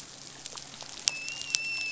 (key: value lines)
label: biophony, dolphin
recorder: SoundTrap 500